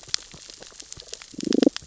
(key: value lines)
label: biophony, damselfish
recorder: SoundTrap 600 or HydroMoth